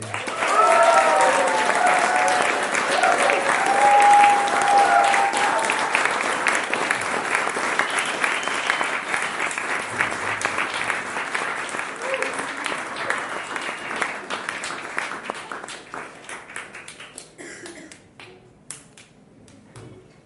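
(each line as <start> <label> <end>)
0.1 People applauding. 20.3
0.4 People cheering. 6.0
8.5 Whistling in the background. 10.0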